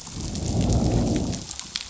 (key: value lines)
label: biophony, growl
recorder: SoundTrap 500